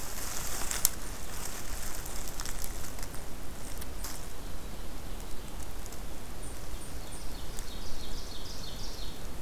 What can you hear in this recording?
Ovenbird